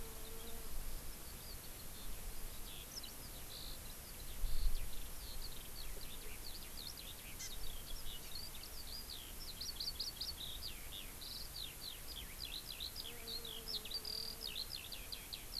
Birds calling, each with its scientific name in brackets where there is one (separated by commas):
Eurasian Skylark (Alauda arvensis), Hawaii Amakihi (Chlorodrepanis virens)